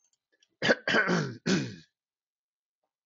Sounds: Throat clearing